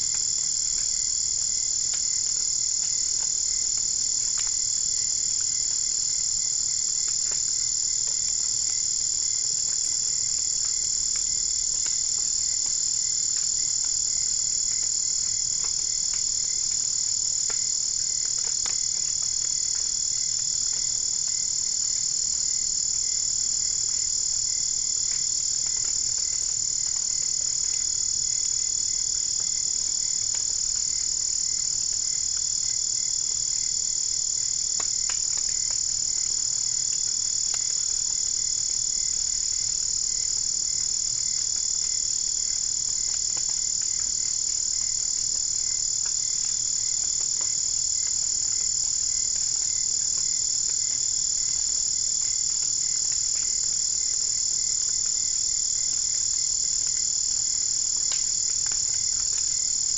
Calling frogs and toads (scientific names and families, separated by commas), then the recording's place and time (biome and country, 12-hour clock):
none
Cerrado, Brazil, 3:15am